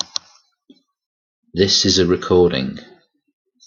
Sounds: Cough